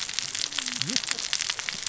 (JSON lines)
{"label": "biophony, cascading saw", "recorder": "SoundTrap 600 or HydroMoth"}